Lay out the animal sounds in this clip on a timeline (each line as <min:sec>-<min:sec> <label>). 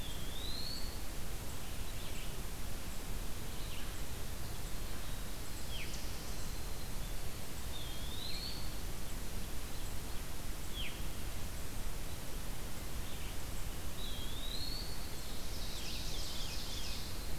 0:00.0-0:01.0 Eastern Wood-Pewee (Contopus virens)
0:00.0-0:17.4 Golden-crowned Kinglet (Regulus satrapa)
0:01.5-0:17.4 Red-eyed Vireo (Vireo olivaceus)
0:05.0-0:06.8 Black-throated Blue Warbler (Setophaga caerulescens)
0:05.6-0:06.1 Veery (Catharus fuscescens)
0:07.6-0:08.9 Eastern Wood-Pewee (Contopus virens)
0:10.6-0:11.0 Veery (Catharus fuscescens)
0:13.8-0:15.1 Eastern Wood-Pewee (Contopus virens)
0:15.1-0:17.4 Ovenbird (Seiurus aurocapilla)
0:15.7-0:17.1 Veery (Catharus fuscescens)